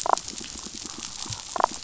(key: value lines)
label: biophony
recorder: SoundTrap 500

label: biophony, damselfish
recorder: SoundTrap 500